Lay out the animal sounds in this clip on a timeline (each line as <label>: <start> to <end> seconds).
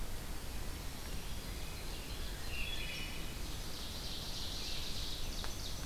Black-throated Green Warbler (Setophaga virens): 0.5 to 1.8 seconds
Ovenbird (Seiurus aurocapilla): 1.2 to 5.9 seconds
Wood Thrush (Hylocichla mustelina): 2.3 to 3.5 seconds